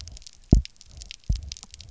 {"label": "biophony, double pulse", "recorder": "SoundTrap 300"}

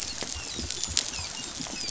{"label": "biophony, dolphin", "recorder": "SoundTrap 500"}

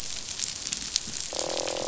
{"label": "biophony, croak", "recorder": "SoundTrap 500"}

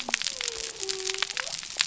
{"label": "biophony", "recorder": "SoundTrap 300"}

